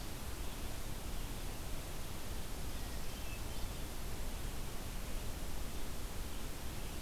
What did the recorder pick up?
Hermit Thrush